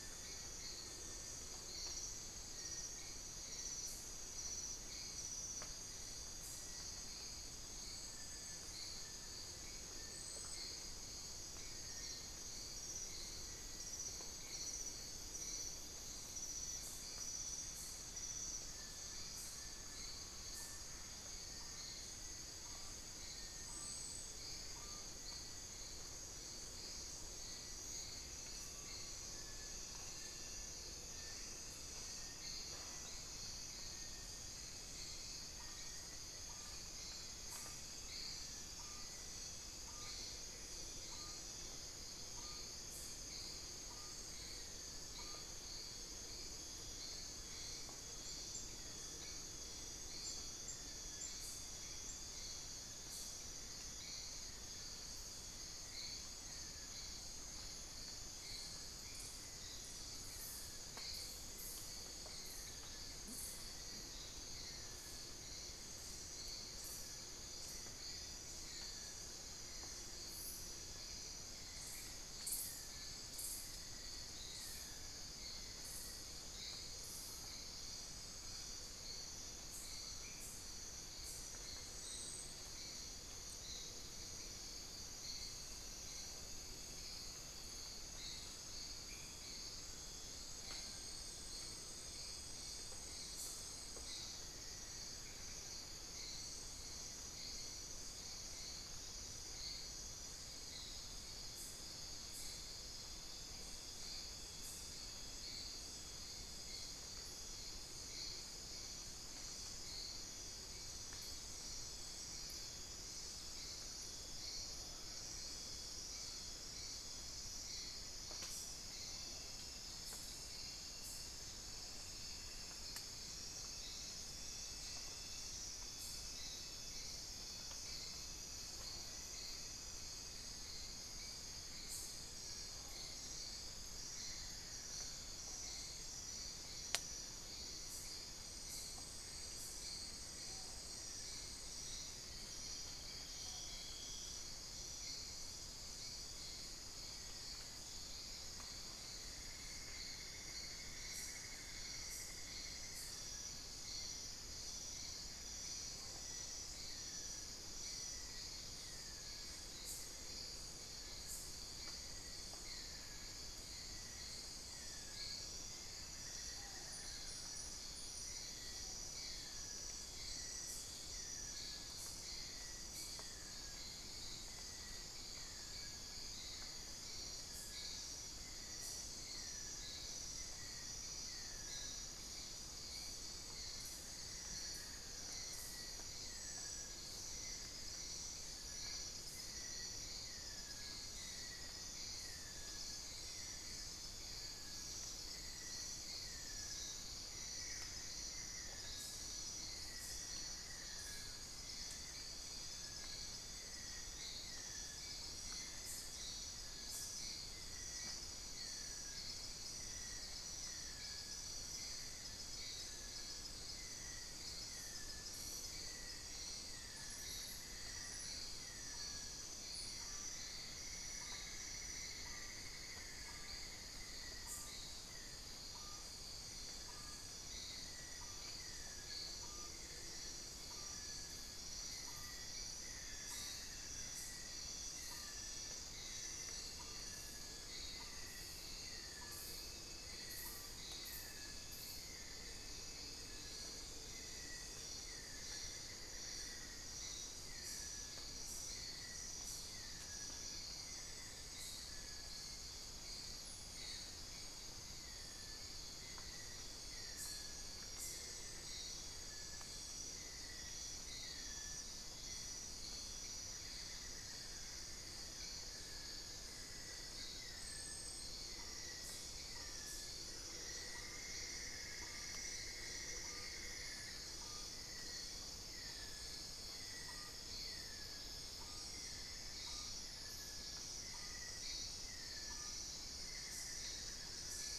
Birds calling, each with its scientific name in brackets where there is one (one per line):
Cinnamon-throated Woodcreeper (Dendrexetastes rufigula)
Thrush-like Wren (Campylorhynchus turdinus)
Amazonian Barred-Woodcreeper (Dendrocolaptes certhia)
Screaming Piha (Lipaugus vociferans)
unidentified bird
Little Tinamou (Crypturellus soui)